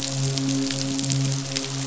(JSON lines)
{"label": "biophony, midshipman", "recorder": "SoundTrap 500"}